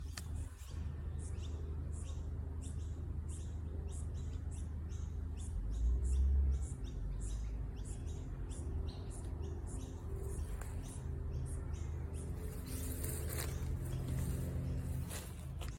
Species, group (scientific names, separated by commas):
Yoyetta repetens, Cicadidae